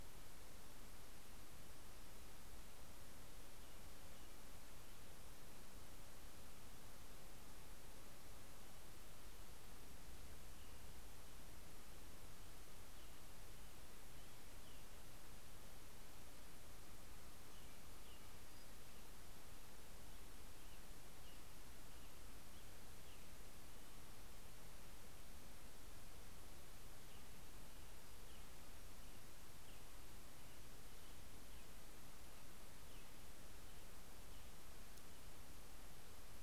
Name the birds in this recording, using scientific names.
Turdus migratorius